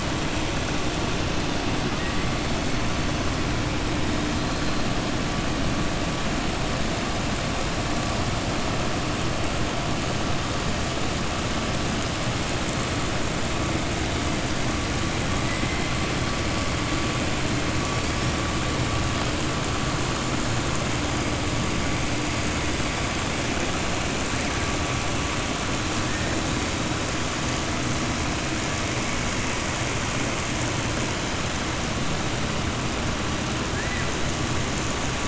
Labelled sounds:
33.7	34.1	killer whale, southern resident, 1.6 to 2.5 kHz

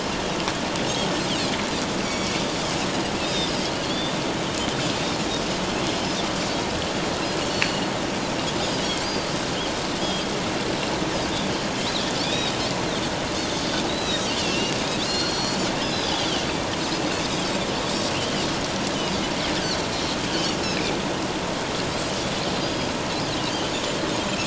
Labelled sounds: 1.3	1.6	Pacific white-sided dolphin, 2.3 to 3.5 kHz
2.0	2.4	Pacific white-sided dolphin, 2.2 to 5.8 kHz
3.2	4.1	Pacific white-sided dolphin, 3.2 to 5.4 kHz
7.5	7.8	Pacific white-sided dolphin, 4.2 to 4.5 kHz
9.0	10.3	Pacific white-sided dolphin, 3.1 to 4.9 kHz
12.2	12.6	Pacific white-sided dolphin, 2.3 to 3.9 kHz
13.9	14.8	Pacific white-sided dolphin, 2.6 to 6.0 kHz
15.0	16.2	Pacific white-sided dolphin, 2.8 to 5.2 kHz
18.1	18.4	Pacific white-sided dolphin, 2.6 to 3.2 kHz
20.3	20.9	Pacific white-sided dolphin, 2.2 to 3.2 kHz
22.6	22.9	Pacific white-sided dolphin, 4.7 to 5.1 kHz

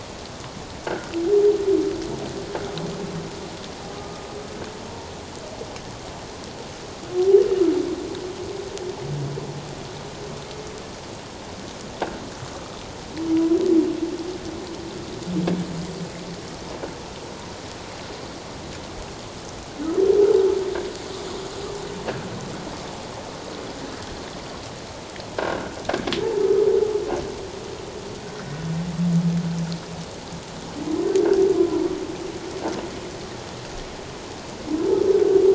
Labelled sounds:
0.9	1.1	humpback whale, 1.3 to 1.7 kHz
3.9	4.2	humpback whale, 1.2 to 1.3 kHz
4.9	5.1	humpback whale, 0.88 to 1.0 kHz
26.4	26.7	humpback whale, 1.2 to 1.3 kHz
31.5	31.8	humpback whale, 0.94 to 1.1 kHz

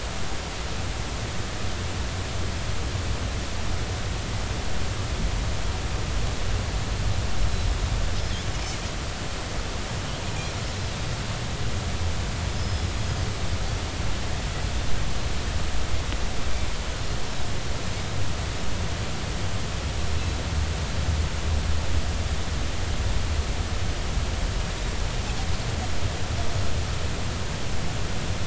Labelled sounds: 12.5	12.9	Pacific white-sided dolphin, 5.1 to 5.2 kHz
20.2	20.4	Pacific white-sided dolphin, 3.8 to 4.0 kHz

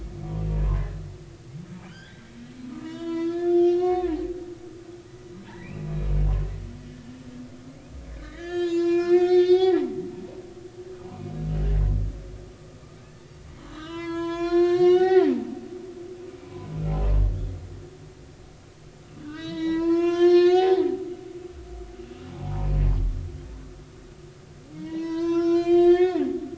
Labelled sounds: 0.5	0.8	humpback whale, 0.83 to 1.1 kHz
1.9	2.3	humpback whale, 1.3 to 3.6 kHz
2.7	4.2	humpback whale, 0.93 to 5.3 kHz
5.5	5.9	humpback whale, 1.5 to 2.8 kHz
6.9	7.2	humpback whale, 1.6 to 1.9 kHz
8.2	9.9	humpback whale, 0.96 to 7.1 kHz
13.7	15.6	humpback whale, 0.80 to 7.6 kHz
16.4	16.7	humpback whale, 0.83 to 1.1 kHz
19.2	20.9	humpback whale, 0.80 to 7.7 kHz
22.3	22.7	humpback whale, 0.80 to 1.1 kHz
24.7	26.2	humpback whale, 0.90 to 7.4 kHz

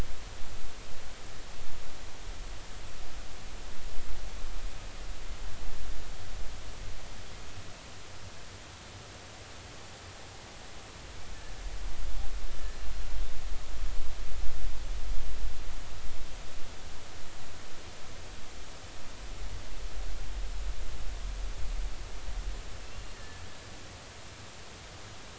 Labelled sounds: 22.8	23.4	killer whale, northern resident, 1.7 to 2.8 kHz

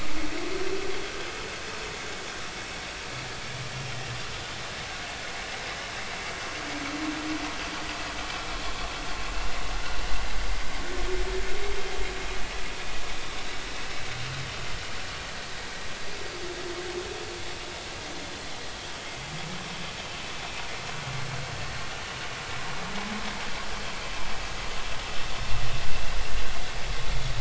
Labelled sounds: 19.0	19.3	vessel noise, 2.0 to 2.2 kHz

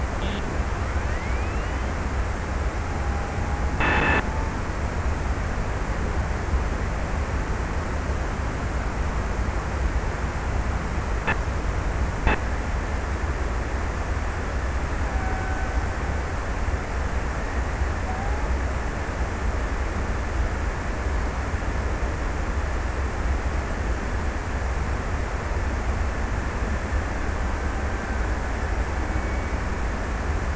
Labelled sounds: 14.6	16.6	killer whale, Bigg's (transient), 0.55 to 2.4 kHz

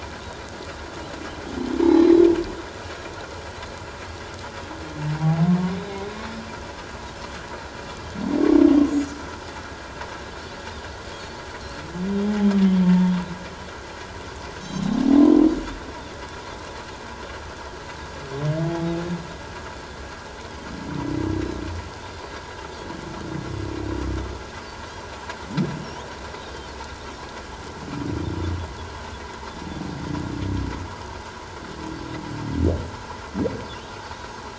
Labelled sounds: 1.8	2.2	humpback whale, 3.8 to 4.1 kHz
5.2	5.4	humpback whale, 0.78 to 0.88 kHz
8.9	9.1	Pacific white-sided dolphin, 5.8 to 7.0 kHz
12.8	13.1	humpback whale, 0.88 to 1.9 kHz
18.6	18.9	humpback whale, 0.78 to 0.88 kHz

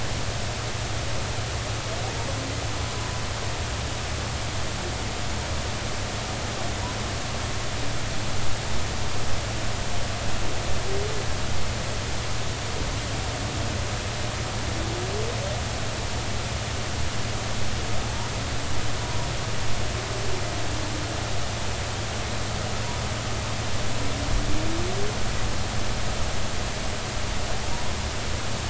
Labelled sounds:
19.0	19.3	humpback whale, 0.90 to 1.1 kHz

